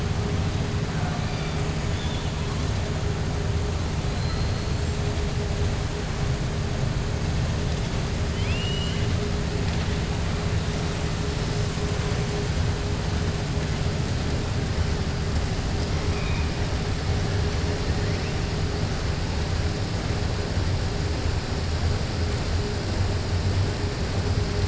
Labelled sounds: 0.9	1.6	killer whale, 0.70 to 4.8 kHz
8.2	9.1	killer whale, 2.1 to 5.8 kHz

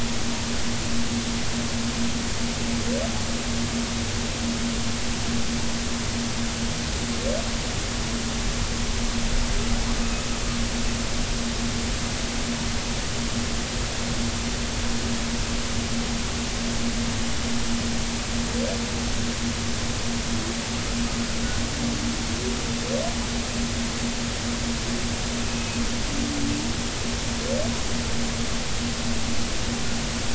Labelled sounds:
25.5	25.8	humpback whale, 2.5 to 2.6 kHz

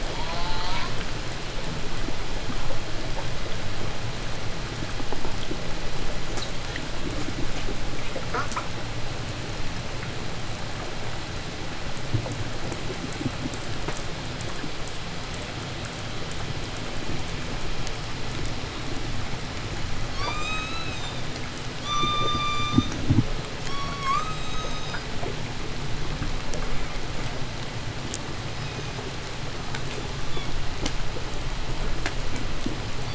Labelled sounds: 0.0	1.1	killer whale, 0.39 to 5.3 kHz
8.2	8.8	killer whale, 0.16 to 2.8 kHz
20.0	21.2	killer whale, 0.80 to 8.0 kHz
21.7	22.9	killer whale, call S16, 0.88 to 8.0 kHz
23.4	25.0	killer whale, call S17, 0.73 to 8.0 kHz
28.2	29.2	killer whale, 2.3 to 8.0 kHz
29.8	30.7	killer whale, 0.91 to 3.7 kHz
32.9	33.1	killer whale, 2.0 to 7.4 kHz

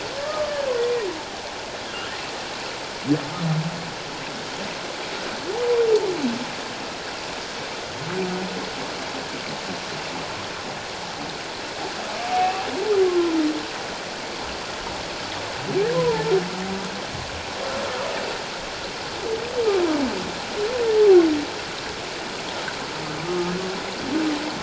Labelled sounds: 0.2	0.5	humpback whale, 1.1 to 1.3 kHz
1.9	2.2	humpback whale, 1.3 to 2.1 kHz
5.5	5.8	humpback whale, 0.78 to 1.0 kHz
12.4	13.3	humpback whale, 0.94 to 2.7 kHz
15.9	16.2	humpback whale, 0.84 to 1.1 kHz
23.2	23.5	humpback whale, 1.2 to 1.3 kHz

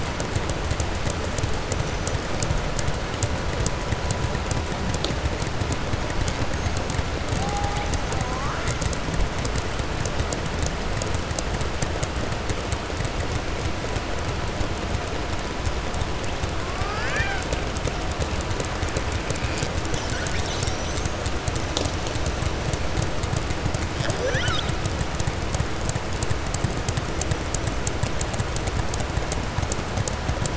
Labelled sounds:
8.1	8.8	killer whale, southern resident, 0.73 to 2.4 kHz
16.6	17.5	killer whale, southern resident, 0.76 to 6.8 kHz

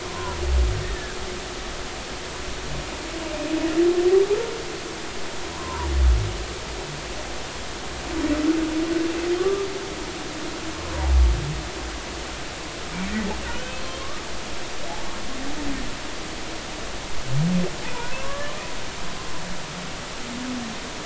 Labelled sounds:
0.0	1.2	humpback whale, 0.93 to 1.9 kHz
5.5	5.9	humpback whale, 0.90 to 1.2 kHz
9.4	9.7	humpback whale, 1.1 to 1.3 kHz
13.4	13.8	humpback whale, 1.4 to 3.1 kHz
18.1	18.5	humpback whale, 0.99 to 1.8 kHz

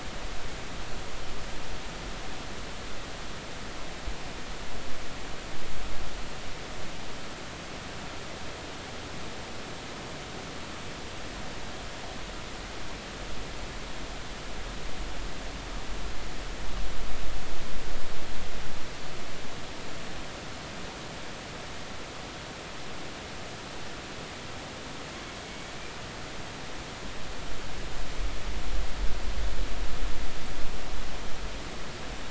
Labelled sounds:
25.4	25.7	killer whale, northern resident, 2.1 to 2.3 kHz

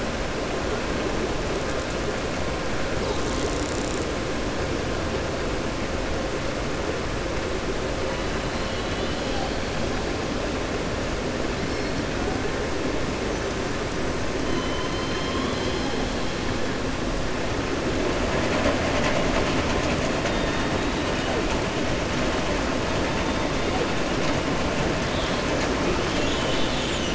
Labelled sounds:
14.4	15.9	killer whale, southern resident, 3.0 to 5.2 kHz

